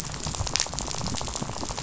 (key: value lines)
label: biophony, rattle
recorder: SoundTrap 500